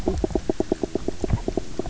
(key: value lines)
label: biophony, knock croak
recorder: SoundTrap 300